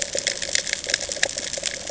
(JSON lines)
{"label": "ambient", "recorder": "HydroMoth"}